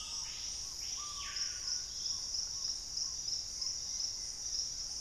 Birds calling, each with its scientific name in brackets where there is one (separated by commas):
Purple-throated Fruitcrow (Querula purpurata), Plain-winged Antshrike (Thamnophilus schistaceus), Screaming Piha (Lipaugus vociferans)